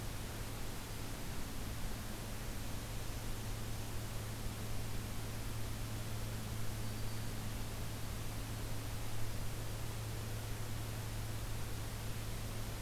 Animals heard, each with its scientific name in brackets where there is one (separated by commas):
Black-throated Green Warbler (Setophaga virens), Blackburnian Warbler (Setophaga fusca)